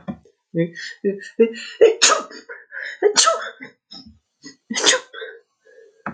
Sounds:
Sneeze